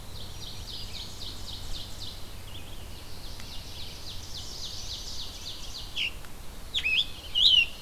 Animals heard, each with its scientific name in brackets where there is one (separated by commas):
Scarlet Tanager (Piranga olivacea), Red-eyed Vireo (Vireo olivaceus), Black-throated Green Warbler (Setophaga virens), Ovenbird (Seiurus aurocapilla), Chestnut-sided Warbler (Setophaga pensylvanica)